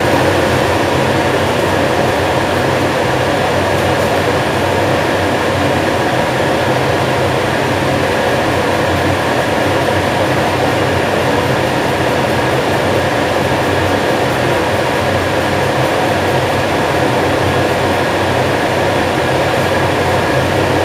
Are there men talking?
no